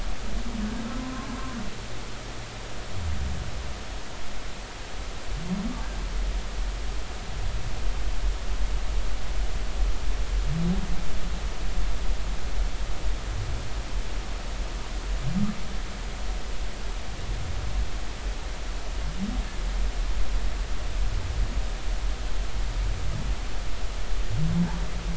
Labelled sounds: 1.0	1.3	humpback whale, 0.96 to 1.1 kHz

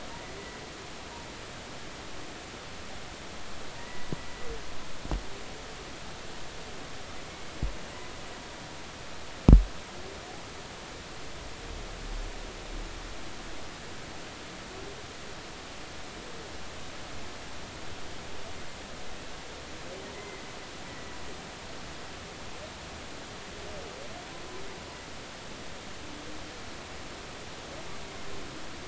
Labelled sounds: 3.7	4.1	humpback whale, 0.90 to 2.0 kHz
20.1	21.1	humpback whale, 1.9 to 2.1 kHz

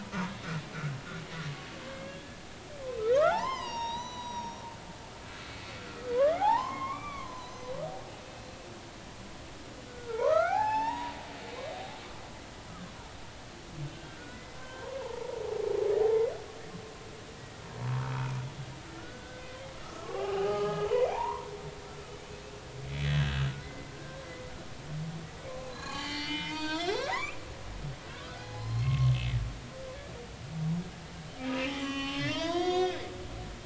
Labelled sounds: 1.9	2.4	humpback whale, 1.5 to 1.8 kHz
2.8	4.6	humpback whale, 0.80 to 6.8 kHz
6.1	8.3	humpback whale, 0.80 to 4.2 kHz
9.8	11.1	humpback whale, 0.80 to 5.6 kHz
13.9	14.2	humpback whale, 1.5 to 1.6 kHz
14.6	15.2	humpback whale, 0.83 to 1.7 kHz
18.0	18.4	humpback whale, 1.2 to 2.5 kHz
19.0	19.5	humpback whale, 1.3 to 1.6 kHz
19.8	21.5	humpback whale, 0.80 to 3.2 kHz
22.9	24.5	humpback whale, 1.5 to 3.5 kHz
25.8	27.4	humpback whale, 0.80 to 7.6 kHz
28.1	29.1	humpback whale, 0.80 to 5.2 kHz
31.5	33.0	humpback whale, 0.80 to 7.0 kHz

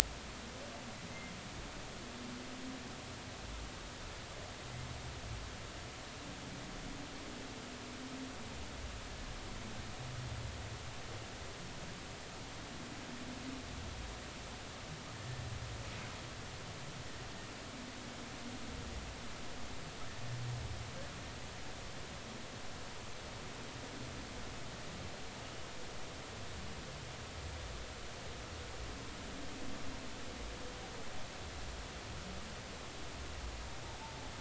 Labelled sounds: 1.1	1.3	humpback whale, 2.0 to 2.1 kHz
15.2	15.4	humpback whale, 1.7 to 1.8 kHz

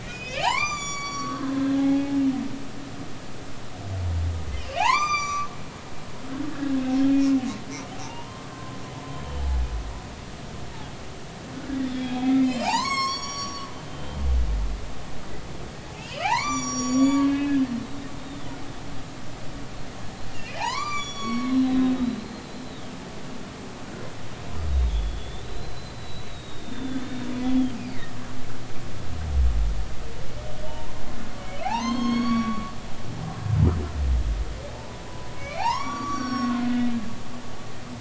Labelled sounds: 0.0	2.2	humpback whale, 0.80 to 8.0 kHz
4.7	5.5	humpback whale, 0.80 to 7.1 kHz
6.5	6.8	humpback whale, 1.5 to 1.9 kHz
8.0	8.8	humpback whale, 0.86 to 1.1 kHz
11.9	14.3	humpback whale, 0.80 to 8.0 kHz
15.9	18.4	humpback whale, 0.80 to 8.0 kHz
20.4	22.8	humpback whale, 0.80 to 8.0 kHz
24.7	27.0	humpback whale, 3.1 to 4.2 kHz
27.4	27.8	humpback whale, 3.1 to 3.5 kHz
30.7	31.0	humpback whale, 0.83 to 1.1 kHz
31.6	32.7	humpback whale, 0.80 to 6.8 kHz
34.8	36.7	humpback whale, 0.80 to 6.9 kHz

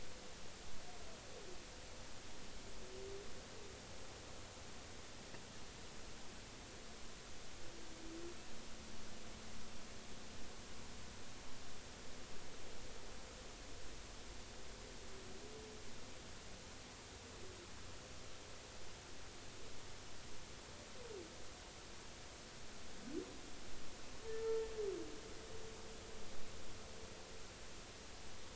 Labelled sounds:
24.4	24.7	humpback whale, 0.86 to 1.4 kHz

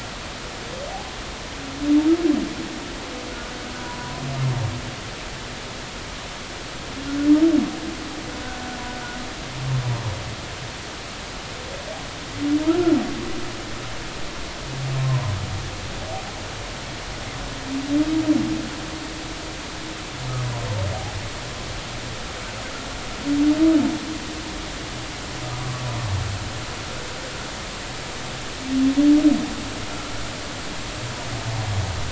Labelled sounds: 3.3	4.2	humpback whale, 0.93 to 1.5 kHz
12.6	13.0	humpback whale, 1.2 to 1.5 kHz
15.0	15.3	humpback whale, 0.93 to 1.1 kHz

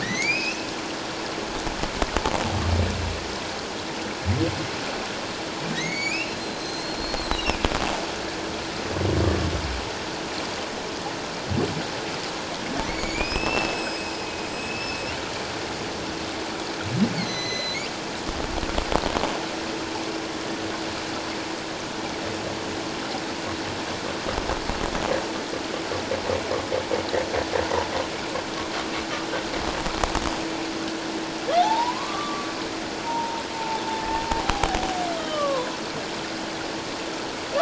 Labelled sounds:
0.0	0.6	humpback whale, 1.7 to 6.7 kHz
5.7	7.6	humpback whale, 1.8 to 7.9 kHz
12.8	14.1	humpback whale, 1.9 to 7.8 kHz
14.5	15.1	humpback whale, 2.5 to 5.5 kHz
17.1	17.9	humpback whale, 1.9 to 6.2 kHz
31.6	33.8	humpback whale, 0.78 to 1.2 kHz
35.1	35.8	humpback whale, 0.94 to 3.3 kHz

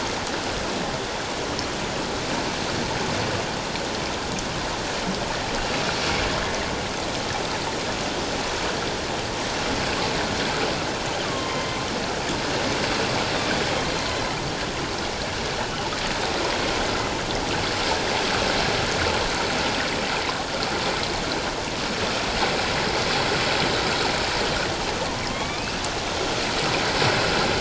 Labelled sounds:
11.2	11.8	killer whale, northern resident, A clan, AA subclan, 0.88 to 3.2 kHz
25.3	25.8	killer whale, northern resident, A clan, AA subclan, 1.0 to 2.8 kHz

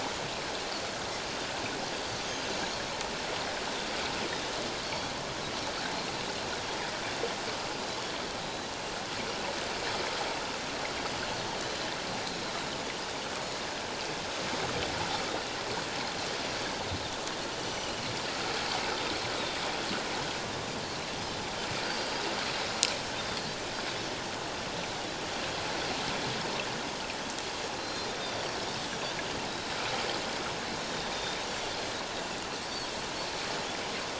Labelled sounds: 4.8	5.1	Pacific white-sided dolphin, 4.3 to 4.6 kHz
8.4	8.7	Pacific white-sided dolphin, 3.8 to 4.0 kHz
11.5	11.8	Pacific white-sided dolphin, 3.0 to 3.2 kHz
17.6	18.0	Pacific white-sided dolphin, 2.8 to 6.0 kHz
21.8	22.2	Pacific white-sided dolphin, 4.5 to 4.9 kHz
27.8	28.4	Pacific white-sided dolphin, 3.3 to 5.6 kHz
30.9	31.1	Pacific white-sided dolphin, 3.6 to 3.8 kHz

